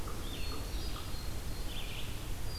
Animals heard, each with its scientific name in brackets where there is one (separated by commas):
Hermit Thrush (Catharus guttatus), Red-eyed Vireo (Vireo olivaceus)